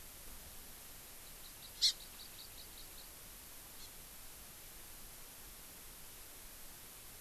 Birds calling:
Hawaii Amakihi (Chlorodrepanis virens)

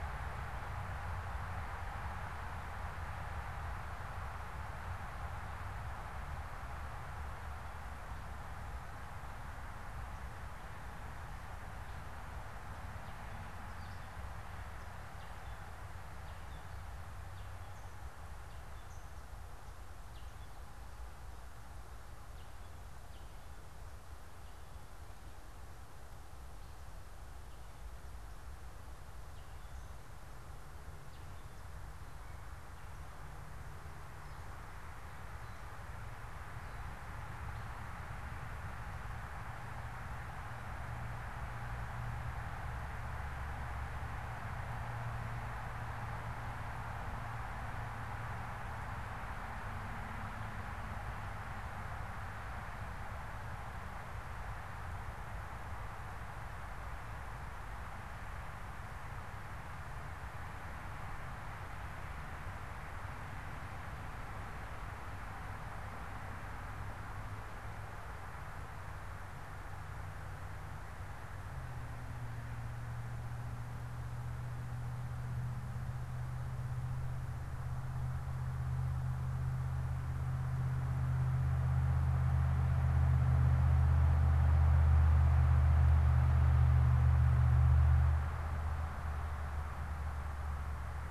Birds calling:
unidentified bird

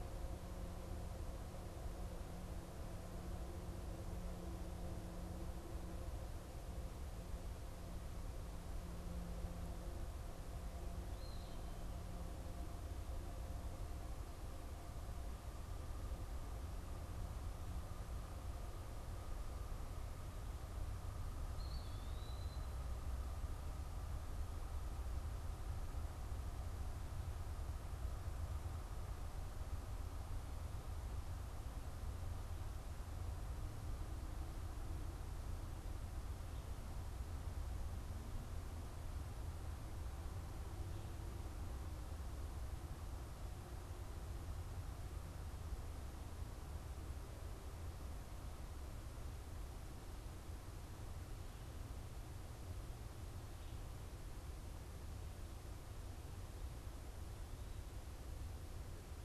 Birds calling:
Eastern Wood-Pewee (Contopus virens)

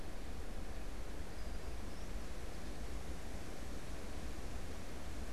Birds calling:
Brown-headed Cowbird (Molothrus ater)

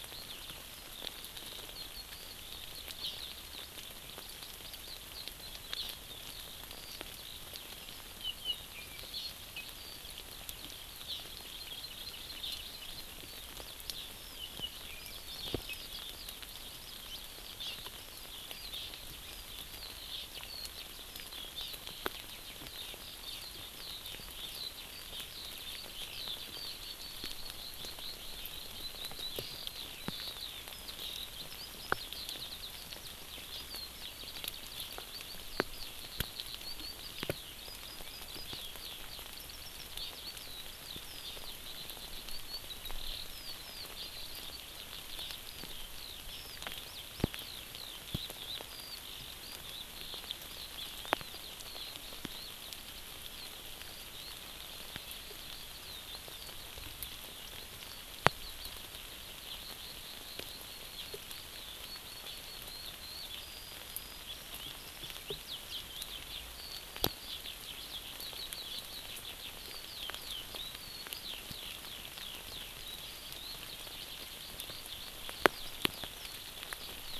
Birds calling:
Eurasian Skylark (Alauda arvensis)
Hawaii Amakihi (Chlorodrepanis virens)

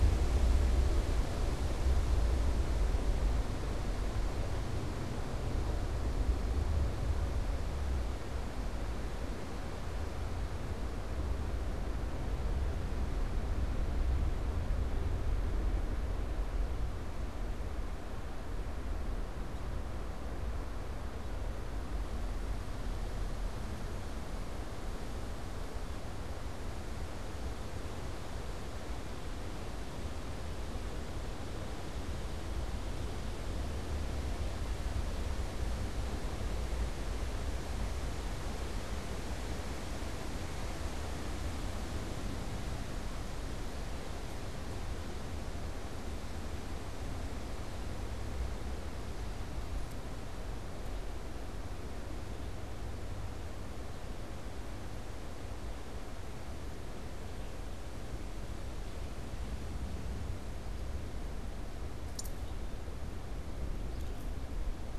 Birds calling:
Red-eyed Vireo (Vireo olivaceus)

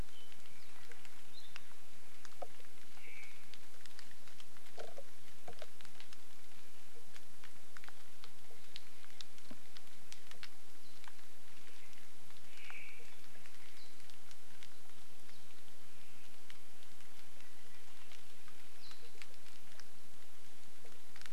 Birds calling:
Omao (Myadestes obscurus)

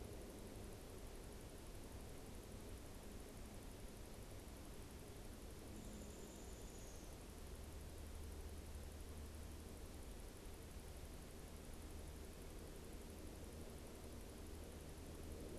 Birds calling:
Downy Woodpecker (Dryobates pubescens)

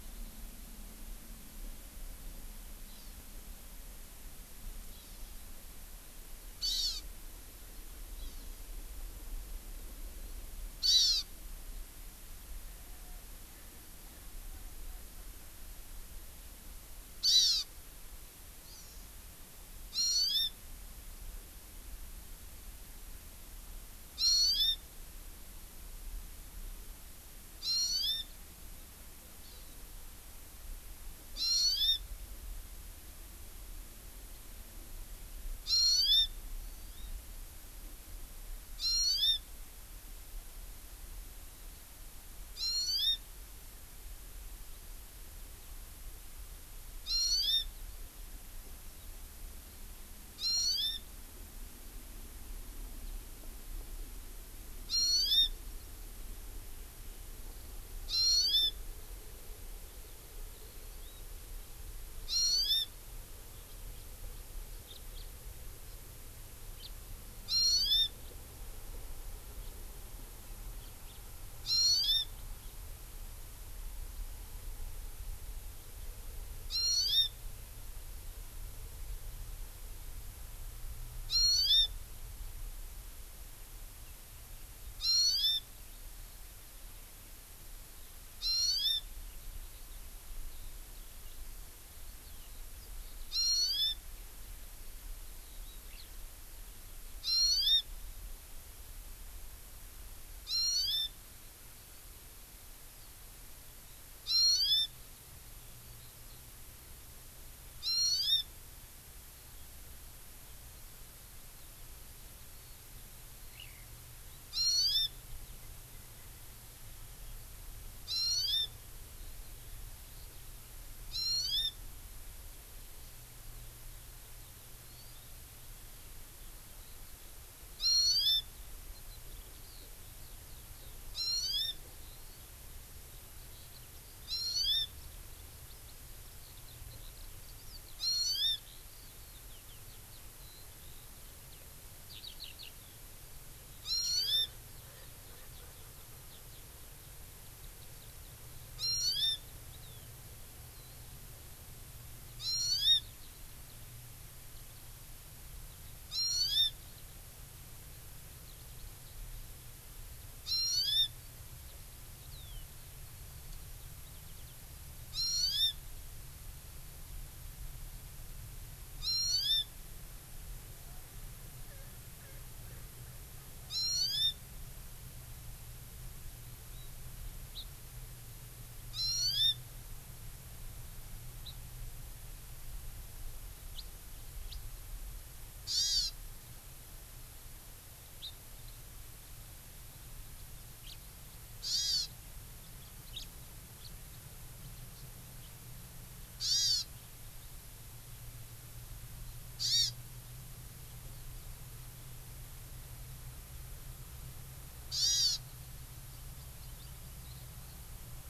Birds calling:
House Finch (Haemorhous mexicanus)
Eurasian Skylark (Alauda arvensis)
Hawaii Amakihi (Chlorodrepanis virens)
Erckel's Francolin (Pternistis erckelii)

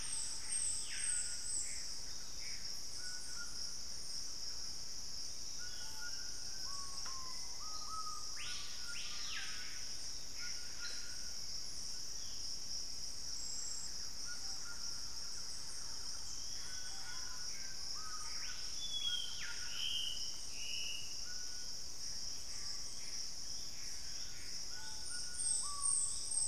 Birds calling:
unidentified bird
White-throated Toucan (Ramphastos tucanus)
Screaming Piha (Lipaugus vociferans)
Collared Trogon (Trogon collaris)
Gray Antbird (Cercomacra cinerascens)
Black-spotted Bare-eye (Phlegopsis nigromaculata)
Thrush-like Wren (Campylorhynchus turdinus)

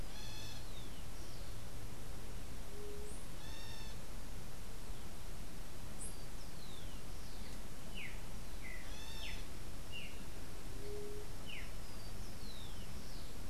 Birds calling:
White-tipped Dove (Leptotila verreauxi)
unidentified bird
Rufous-collared Sparrow (Zonotrichia capensis)
Streaked Saltator (Saltator striatipectus)

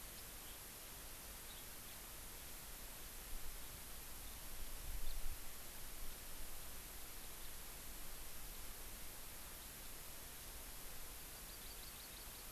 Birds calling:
Hawaii Amakihi (Chlorodrepanis virens)
House Finch (Haemorhous mexicanus)

